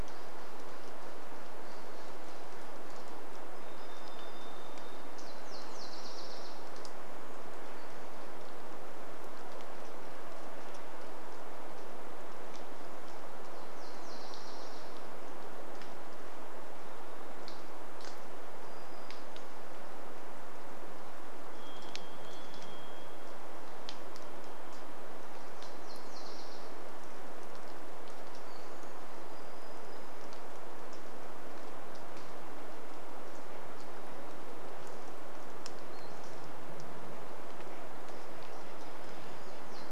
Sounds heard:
Varied Thrush song, rain, Pacific-slope Flycatcher call, warbler song, Nashville Warbler song, unidentified sound

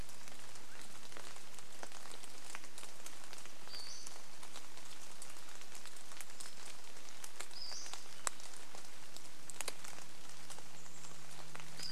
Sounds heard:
airplane, Swainson's Thrush call, Chestnut-backed Chickadee call, Pacific-slope Flycatcher call, rain

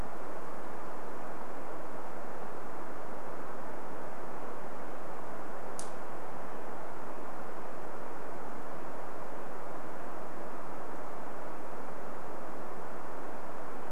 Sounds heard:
Red-breasted Nuthatch song

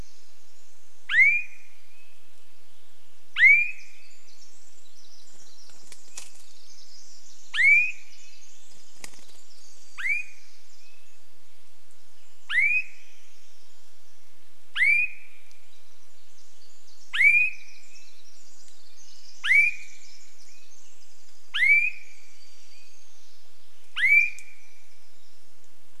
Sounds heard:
bird wingbeats, Pacific Wren song, Swainson's Thrush song, Swainson's Thrush call, warbler song

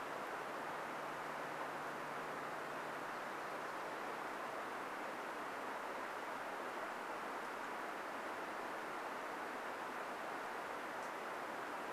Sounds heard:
warbler song

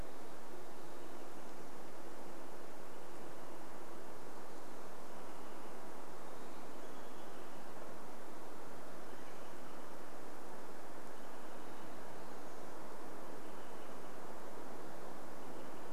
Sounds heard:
Western Wood-Pewee song, Olive-sided Flycatcher call, Wrentit song

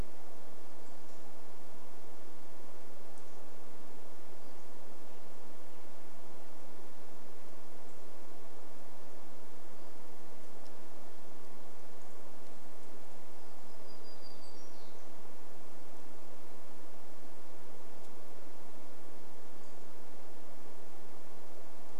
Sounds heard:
warbler song, unidentified bird chip note

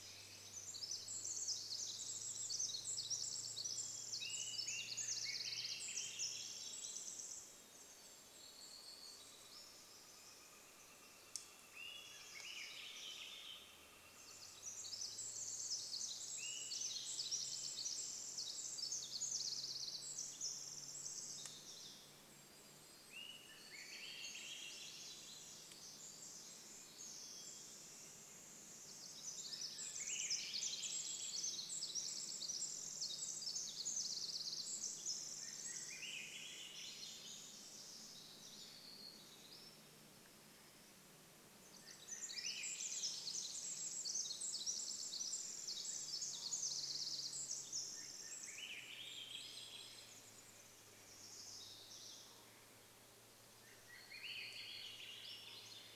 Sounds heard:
Hermit Thrush song, warbler song, insect buzz, Swainson's Thrush song, Golden-crowned Kinglet song, Swainson's Thrush call, Pacific Wren song, Pileated Woodpecker call

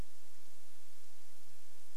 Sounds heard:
Sooty Grouse song

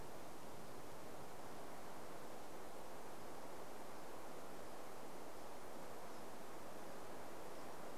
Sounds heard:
unidentified bird chip note

